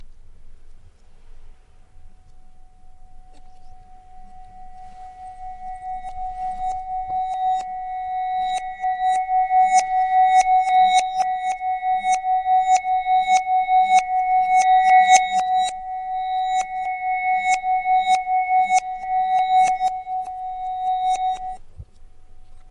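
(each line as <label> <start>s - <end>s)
A high-pitched, pure-toned vibrating sound with a sustained ringing quality that repeatedly builds to become louder. 3.4s - 22.7s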